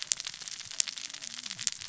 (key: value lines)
label: biophony, cascading saw
recorder: SoundTrap 600 or HydroMoth